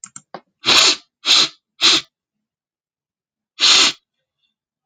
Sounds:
Sniff